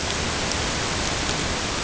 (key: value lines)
label: ambient
recorder: HydroMoth